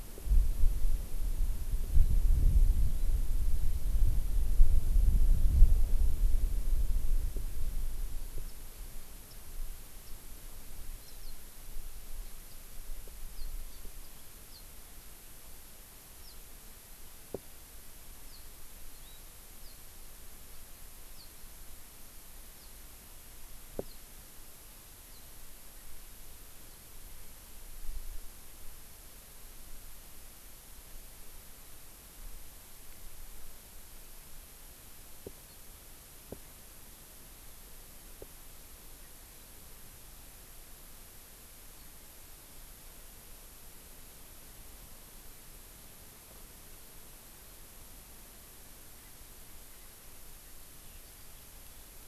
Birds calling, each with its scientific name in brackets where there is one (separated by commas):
Hawaii Amakihi (Chlorodrepanis virens), Warbling White-eye (Zosterops japonicus)